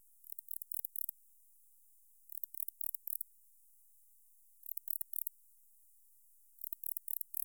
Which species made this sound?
Barbitistes yersini